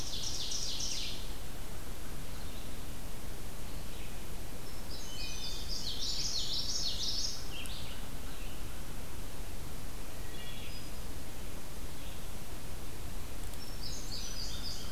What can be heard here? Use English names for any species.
Ovenbird, Red-eyed Vireo, Indigo Bunting, Wood Thrush, Common Yellowthroat